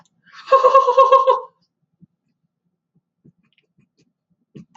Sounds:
Laughter